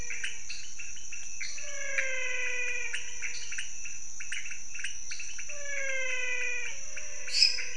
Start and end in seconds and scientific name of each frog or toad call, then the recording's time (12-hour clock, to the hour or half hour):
0.0	0.6	Physalaemus albonotatus
0.0	5.7	Dendropsophus nanus
0.0	7.7	Leptodactylus podicipinus
1.5	3.7	Physalaemus albonotatus
5.5	7.5	Physalaemus albonotatus
7.2	7.7	Dendropsophus minutus
4am